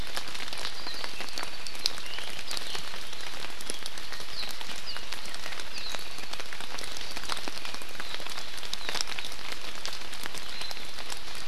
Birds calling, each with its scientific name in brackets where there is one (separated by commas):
Apapane (Himatione sanguinea)